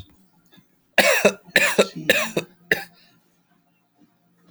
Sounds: Cough